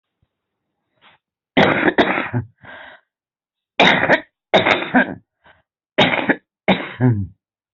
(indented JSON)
{
  "expert_labels": [
    {
      "quality": "good",
      "cough_type": "wet",
      "dyspnea": false,
      "wheezing": false,
      "stridor": false,
      "choking": false,
      "congestion": false,
      "nothing": true,
      "diagnosis": "lower respiratory tract infection",
      "severity": "severe"
    }
  ],
  "age": 56,
  "gender": "female",
  "respiratory_condition": true,
  "fever_muscle_pain": false,
  "status": "COVID-19"
}